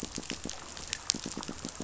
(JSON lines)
{"label": "biophony, pulse", "recorder": "SoundTrap 500"}